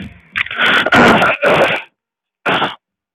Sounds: Throat clearing